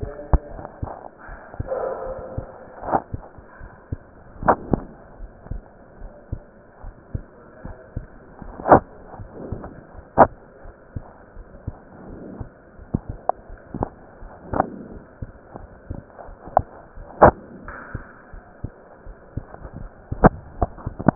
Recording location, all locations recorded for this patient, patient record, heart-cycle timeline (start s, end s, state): pulmonary valve (PV)
aortic valve (AV)+pulmonary valve (PV)+tricuspid valve (TV)+mitral valve (MV)
#Age: Child
#Sex: Female
#Height: 129.0 cm
#Weight: 28.8 kg
#Pregnancy status: False
#Murmur: Unknown
#Murmur locations: nan
#Most audible location: nan
#Systolic murmur timing: nan
#Systolic murmur shape: nan
#Systolic murmur grading: nan
#Systolic murmur pitch: nan
#Systolic murmur quality: nan
#Diastolic murmur timing: nan
#Diastolic murmur shape: nan
#Diastolic murmur grading: nan
#Diastolic murmur pitch: nan
#Diastolic murmur quality: nan
#Outcome: Normal
#Campaign: 2015 screening campaign
0.00	0.49	unannotated
0.49	0.64	S1
0.64	0.78	systole
0.78	0.90	S2
0.90	1.28	diastole
1.28	1.38	S1
1.38	1.54	systole
1.54	1.68	S2
1.68	2.04	diastole
2.04	2.16	S1
2.16	2.32	systole
2.32	2.46	S2
2.46	2.86	diastole
2.86	3.00	S1
3.00	3.12	systole
3.12	3.22	S2
3.22	3.60	diastole
3.60	3.70	S1
3.70	3.86	systole
3.86	4.00	S2
4.00	4.40	diastole
4.40	4.58	S1
4.58	4.70	systole
4.70	4.86	S2
4.86	5.18	diastole
5.18	5.32	S1
5.32	5.46	systole
5.46	5.62	S2
5.62	6.00	diastole
6.00	6.12	S1
6.12	6.28	systole
6.28	6.42	S2
6.42	6.82	diastole
6.82	6.94	S1
6.94	7.10	systole
7.10	7.24	S2
7.24	7.64	diastole
7.64	7.76	S1
7.76	7.92	systole
7.92	8.06	S2
8.06	8.46	diastole
8.46	8.56	S1
8.56	8.68	systole
8.68	8.84	S2
8.84	9.18	diastole
9.18	9.32	S1
9.32	9.50	systole
9.50	9.62	S2
9.62	9.94	diastole
9.94	10.04	S1
10.04	10.18	systole
10.18	10.32	S2
10.32	10.64	diastole
10.64	10.74	S1
10.74	10.92	systole
10.92	11.04	S2
11.04	11.36	diastole
11.36	11.46	S1
11.46	11.66	systole
11.66	11.76	S2
11.76	12.06	diastole
12.06	12.20	S1
12.20	12.38	systole
12.38	12.50	S2
12.50	21.15	unannotated